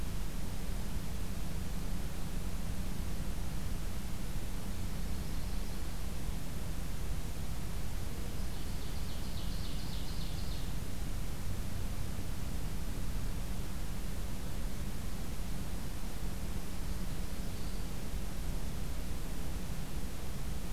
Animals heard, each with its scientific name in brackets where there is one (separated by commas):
Yellow-rumped Warbler (Setophaga coronata), Ovenbird (Seiurus aurocapilla)